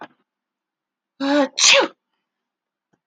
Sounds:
Sneeze